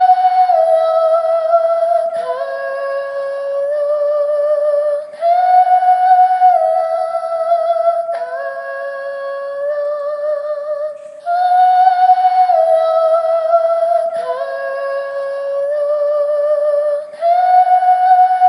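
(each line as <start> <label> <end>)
0.0 A woman is singing. 18.5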